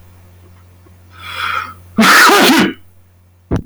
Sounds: Sneeze